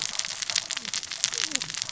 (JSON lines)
{"label": "biophony, cascading saw", "recorder": "SoundTrap 600 or HydroMoth"}